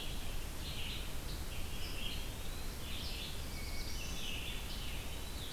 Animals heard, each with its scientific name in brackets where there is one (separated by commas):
Red-eyed Vireo (Vireo olivaceus), Eastern Wood-Pewee (Contopus virens), Black-throated Blue Warbler (Setophaga caerulescens), Hermit Thrush (Catharus guttatus)